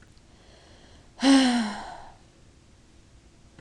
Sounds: Sigh